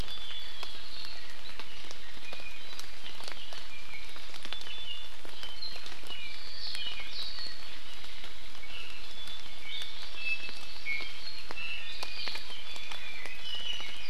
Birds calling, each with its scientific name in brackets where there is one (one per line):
Iiwi (Drepanis coccinea)
Hawaii Amakihi (Chlorodrepanis virens)